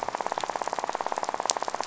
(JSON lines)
{"label": "biophony, rattle", "recorder": "SoundTrap 500"}